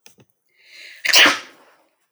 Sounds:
Sneeze